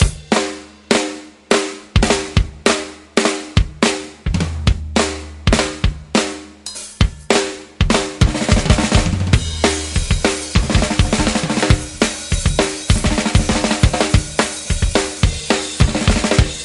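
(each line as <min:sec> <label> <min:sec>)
0:00.0 A rhythmic drum sound. 0:08.2
0:08.2 A quick drumbeat. 0:09.8
0:09.8 A rhythmic drum beat gradually increasing in speed. 0:16.6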